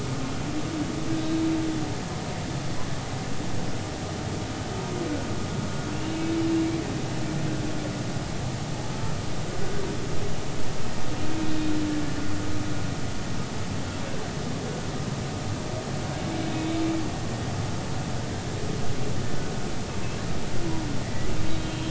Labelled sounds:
1.1	1.4	humpback whale, 1.5 to 1.7 kHz
5.9	6.2	humpback whale, 2.6 to 2.9 kHz
21.0	21.8	humpback whale, 1.8 to 3.2 kHz

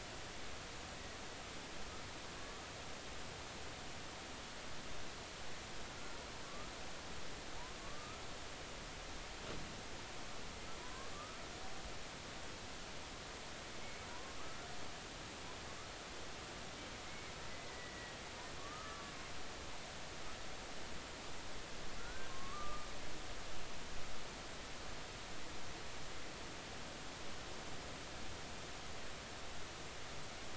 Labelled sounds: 2.4	2.6	killer whale, Bigg's (transient), 1.1 to 1.3 kHz
5.9	6.7	killer whale, Bigg's (transient), 1.1 to 1.4 kHz
7.8	8.2	killer whale, Bigg's (transient), 1.1 to 1.3 kHz
10.8	11.4	killer whale, Bigg's (transient), 0.93 to 1.3 kHz
13.8	14.7	killer whale, Bigg's (transient), 0.93 to 2.3 kHz
17.0	18.2	killer whale, Bigg's (transient), 1.9 to 2.3 kHz
18.6	19.1	killer whale, Bigg's (transient), 1.1 to 1.4 kHz
22.0	22.9	killer whale, Bigg's (transient), 1.0 to 1.6 kHz

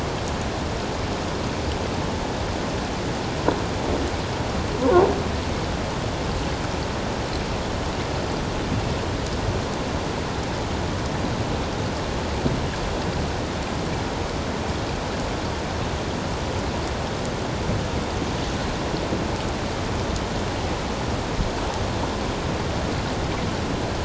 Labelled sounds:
4.8	5.1	croaking sound likely from a nearby submerged object, 0.88 to 1.2 kHz

